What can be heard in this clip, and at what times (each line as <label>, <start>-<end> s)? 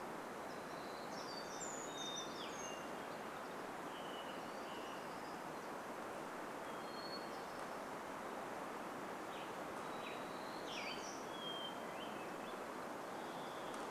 warbler song, 0-2 s
Brown Creeper song, 0-4 s
Hermit Thrush song, 0-8 s
Hermit Thrush call, 4-6 s
Western Tanager song, 8-12 s
warbler song, 10-12 s
Hermit Thrush song, 10-14 s
Varied Thrush song, 12-14 s